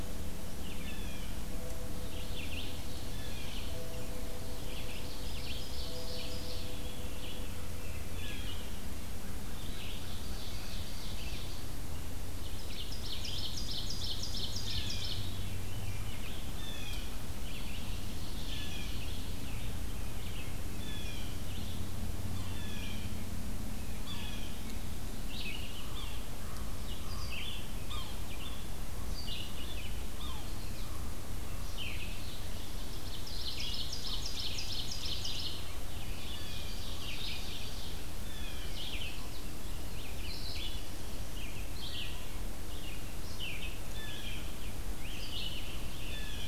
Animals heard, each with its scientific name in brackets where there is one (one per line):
Yellow-bellied Sapsucker (Sphyrapicus varius)
Common Raven (Corvus corax)
Blue Jay (Cyanocitta cristata)
Ovenbird (Seiurus aurocapilla)
Red-eyed Vireo (Vireo olivaceus)